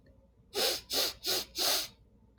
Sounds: Sniff